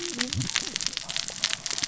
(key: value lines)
label: biophony, cascading saw
recorder: SoundTrap 600 or HydroMoth